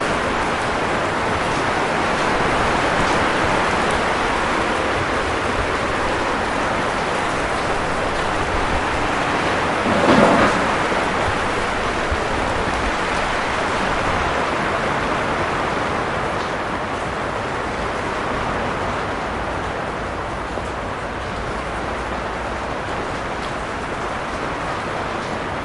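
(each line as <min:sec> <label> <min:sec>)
0:00.0 Rain falling on a roof fades slowly. 0:25.6
0:09.7 Thunder muffled in the distance. 0:10.8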